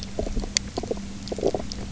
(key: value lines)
label: biophony, knock croak
recorder: SoundTrap 300